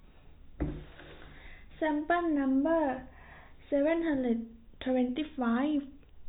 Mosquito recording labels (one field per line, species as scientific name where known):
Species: no mosquito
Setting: cup